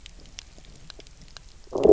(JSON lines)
{"label": "biophony, low growl", "recorder": "SoundTrap 300"}